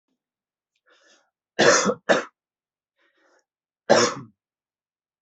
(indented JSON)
{
  "expert_labels": [
    {
      "quality": "good",
      "cough_type": "dry",
      "dyspnea": false,
      "wheezing": false,
      "stridor": false,
      "choking": false,
      "congestion": false,
      "nothing": true,
      "diagnosis": "lower respiratory tract infection",
      "severity": "mild"
    }
  ],
  "age": 26,
  "gender": "male",
  "respiratory_condition": false,
  "fever_muscle_pain": true,
  "status": "symptomatic"
}